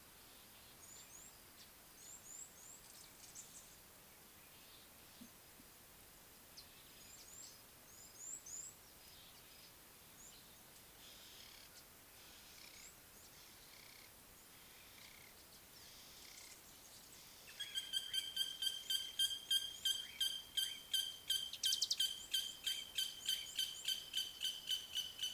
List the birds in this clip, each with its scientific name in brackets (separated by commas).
Ring-necked Dove (Streptopelia capicola), Mariqua Sunbird (Cinnyris mariquensis), Nubian Woodpecker (Campethera nubica), Red-cheeked Cordonbleu (Uraeginthus bengalus)